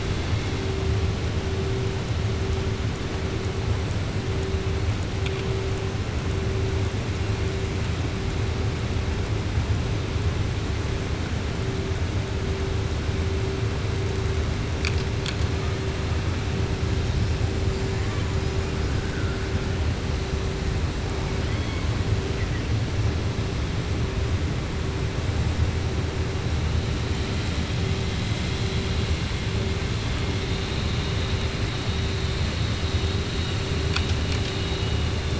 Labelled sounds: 21.4	21.9	killer whale, southern resident, 1.9 to 3.4 kHz
28.1	28.9	killer whale, southern resident, 2.8 to 4.0 kHz

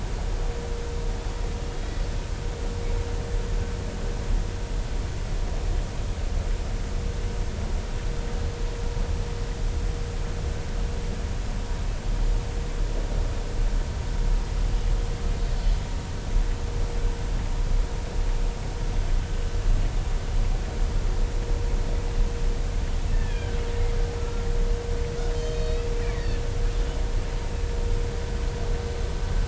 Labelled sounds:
15.4	15.8	killer whale, Bigg's (transient), 4.3 to 4.5 kHz
23.1	23.6	killer whale, Bigg's (transient), 1.5 to 3.4 kHz
24.2	24.5	killer whale, Bigg's (transient), 1.3 to 1.4 kHz
25.3	26.4	killer whale, Bigg's (transient), 1.7 to 6.3 kHz

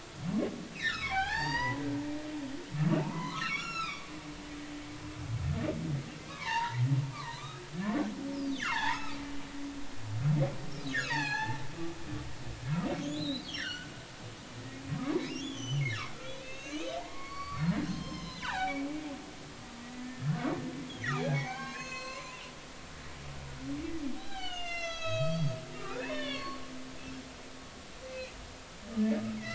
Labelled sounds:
0.7	1.8	humpback whale, 0.80 to 6.8 kHz
3.0	4.1	humpback whale, 0.83 to 7.1 kHz
6.3	7.6	humpback whale, 0.83 to 2.6 kHz
8.5	9.5	humpback whale, 0.80 to 5.3 kHz
11.0	11.6	humpback whale, 0.80 to 7.1 kHz
13.0	13.9	humpback whale, 2.7 to 6.0 kHz
14.6	15.8	humpback whale, 0.96 to 6.3 kHz
16.4	18.9	humpback whale, 0.80 to 6.7 kHz
20.0	20.4	humpback whale, 1.7 to 1.9 kHz
21.1	26.6	humpback whale, 0.80 to 7.3 kHz
28.1	28.4	humpback whale, 2.3 to 2.6 kHz
29.4	29.5	humpback whale, 1.2 to 2.3 kHz

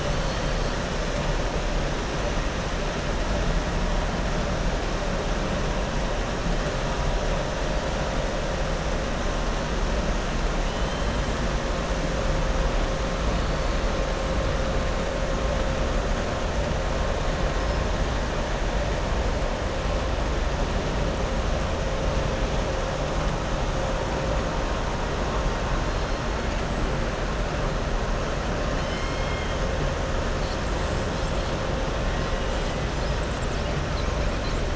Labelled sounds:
0.0	0.7	killer whale, southern resident, 4.2 to 5.4 kHz
10.7	11.1	killer whale, southern resident, 2.9 to 4.1 kHz

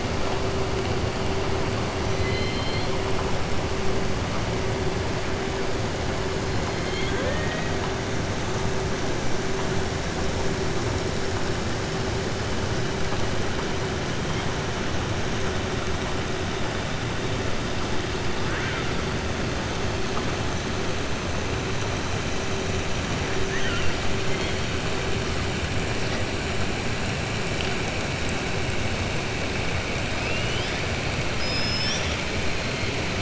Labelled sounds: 2.0	2.9	killer whale, southern resident, 2.0 to 6.0 kHz
6.7	7.8	killer whale, southern resident, 0.50 to 4.3 kHz
23.4	23.9	killer whale, southern resident, 1.4 to 3.2 kHz

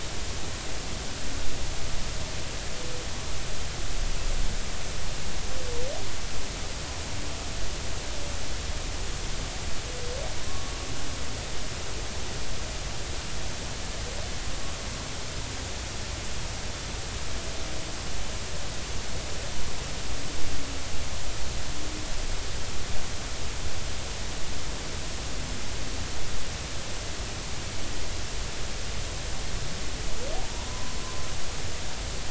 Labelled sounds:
10.4	10.7	humpback whale, 1.0 to 1.2 kHz
30.4	31.0	humpback whale, 0.86 to 1.1 kHz

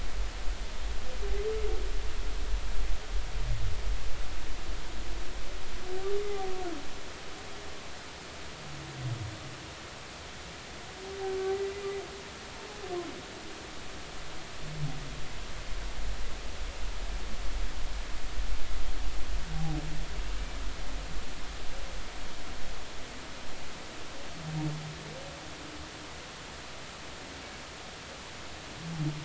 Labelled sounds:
6.3	6.5	humpback whale, 0.80 to 0.86 kHz

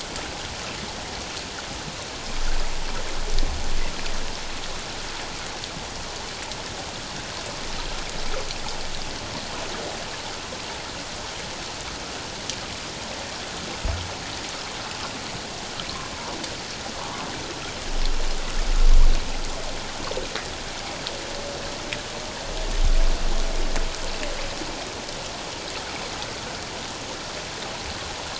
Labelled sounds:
17.0	17.3	humpback whale, 0.81 to 1.2 kHz

